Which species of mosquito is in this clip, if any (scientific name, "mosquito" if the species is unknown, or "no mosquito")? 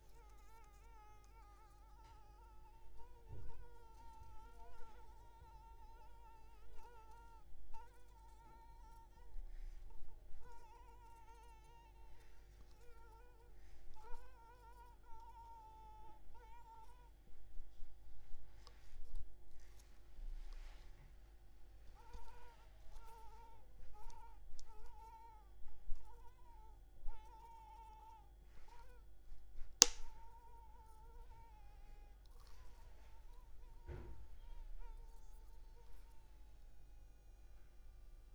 Anopheles maculipalpis